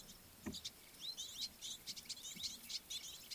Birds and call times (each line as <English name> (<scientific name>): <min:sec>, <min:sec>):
Red-billed Firefinch (Lagonosticta senegala): 0:01.9